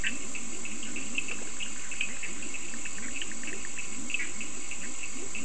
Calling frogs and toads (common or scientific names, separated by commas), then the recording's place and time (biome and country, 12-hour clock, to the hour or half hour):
Leptodactylus latrans, Cochran's lime tree frog, Bischoff's tree frog
Atlantic Forest, Brazil, ~4am